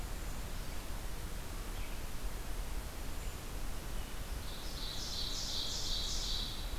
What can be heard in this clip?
Brown Creeper, Ovenbird